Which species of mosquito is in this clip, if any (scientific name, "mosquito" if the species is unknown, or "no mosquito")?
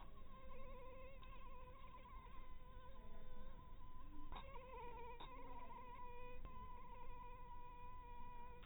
mosquito